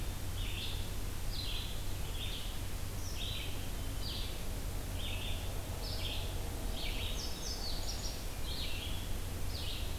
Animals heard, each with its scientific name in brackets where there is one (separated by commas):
Red-eyed Vireo (Vireo olivaceus), Indigo Bunting (Passerina cyanea)